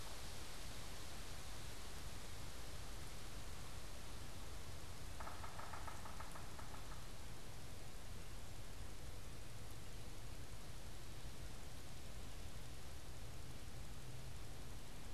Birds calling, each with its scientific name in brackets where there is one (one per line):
Yellow-bellied Sapsucker (Sphyrapicus varius)